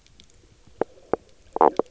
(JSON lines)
{"label": "biophony, knock croak", "recorder": "SoundTrap 300"}